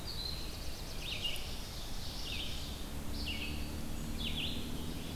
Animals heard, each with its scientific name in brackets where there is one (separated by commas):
Red-eyed Vireo (Vireo olivaceus), Ovenbird (Seiurus aurocapilla), Black-throated Blue Warbler (Setophaga caerulescens)